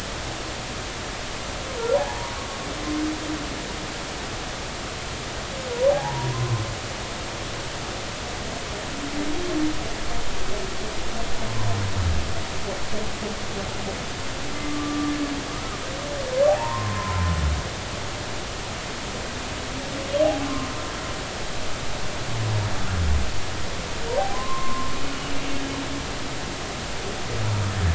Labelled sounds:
5.9	6.3	humpback whale, 0.80 to 1.0 kHz
14.5	15.8	humpback whale, 1.0 to 1.3 kHz
16.6	17.3	humpback whale, 0.80 to 1.1 kHz
24.3	24.9	humpback whale, 0.96 to 1.1 kHz

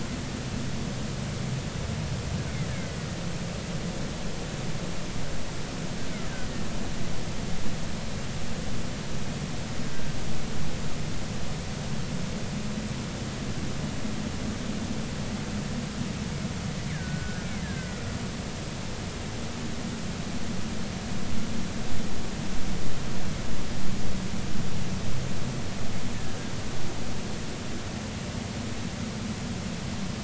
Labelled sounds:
2.7	3.1	killer whale, Bigg's (transient), 1.9 to 2.3 kHz
6.4	6.7	killer whale, Bigg's (transient), 1.8 to 2.0 kHz
16.9	18.0	killer whale, Bigg's (transient), 1.4 to 2.1 kHz

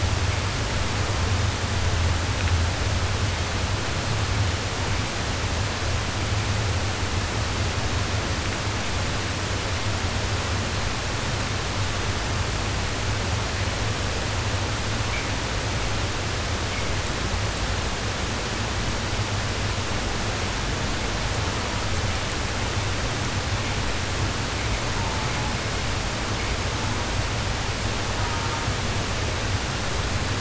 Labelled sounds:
24.8	25.6	killer whale, southern resident, 0.66 to 1.3 kHz
26.5	27.2	killer whale, southern resident, 0.59 to 1.3 kHz
28.1	28.7	killer whale, southern resident, 0.56 to 1.8 kHz

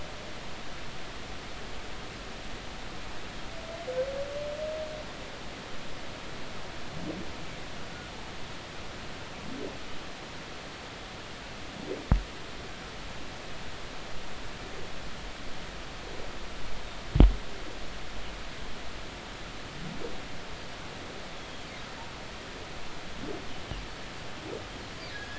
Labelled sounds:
21.4	21.6	humpback whale, 3.2 to 3.4 kHz

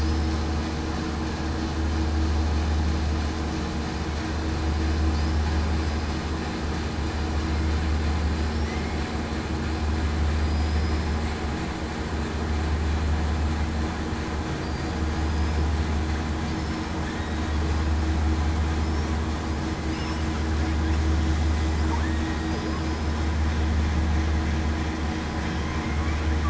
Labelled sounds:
10.4	11.2	killer whale, southern resident, 4.8 to 8.0 kHz
14.6	15.6	killer whale, southern resident, 4.7 to 5.2 kHz
22.0	22.8	killer whale, southern resident, 1.7 to 5.1 kHz

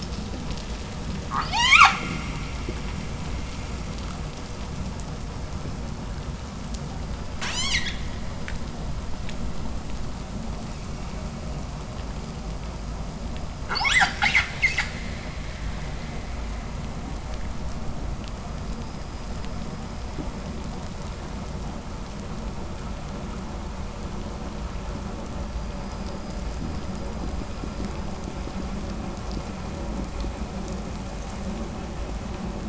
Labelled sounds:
1.2	2.1	killer whale, 0.39 to 8.0 kHz
7.2	8.1	killer whale, 0.50 to 8.0 kHz
13.6	15.0	killer whale, 0.44 to 8.0 kHz

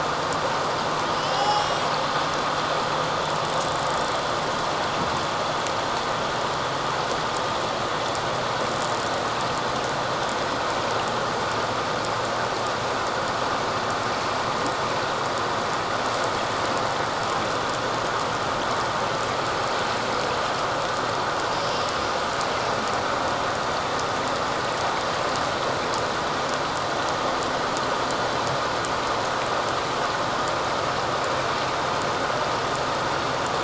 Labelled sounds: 1.2	1.9	humpback whale, 0.78 to 7.8 kHz

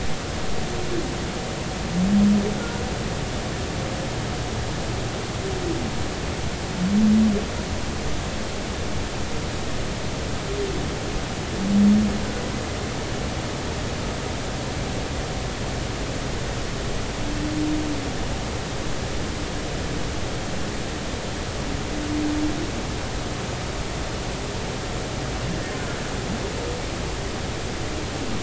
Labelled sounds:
2.6	2.8	humpback whale, 1.3 to 1.5 kHz

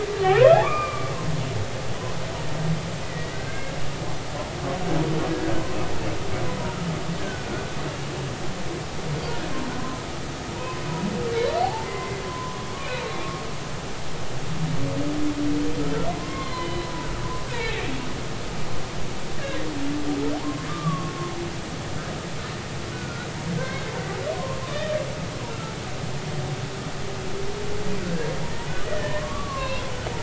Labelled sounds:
0.1	1.1	humpback whale, 1.0 to 2.6 kHz
3.1	3.7	humpback whale, 1.5 to 2.0 kHz
7.2	7.7	humpback whale, 1.3 to 1.7 kHz
9.7	10.0	humpback whale, 0.96 to 1.1 kHz
10.5	10.8	humpback whale, 0.90 to 1.1 kHz
11.3	13.1	humpback whale, 0.80 to 4.4 kHz
16.1	17.9	humpback whale, 0.90 to 4.3 kHz
20.3	21.2	humpback whale, 0.80 to 1.2 kHz
22.9	23.9	humpback whale, 1.3 to 3.8 kHz
24.4	24.6	humpback whale, 0.93 to 1.1 kHz
25.5	25.7	humpback whale, 1.3 to 1.4 kHz
28.9	29.8	humpback whale, 0.90 to 3.9 kHz

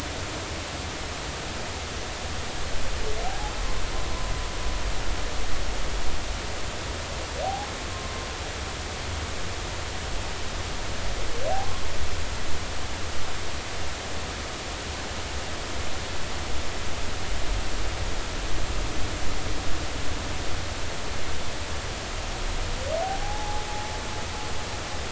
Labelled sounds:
3.2	3.5	humpback whale, 0.80 to 0.90 kHz
7.4	8.3	humpback whale, 0.80 to 1.1 kHz
23.2	23.7	humpback whale, 0.80 to 0.90 kHz

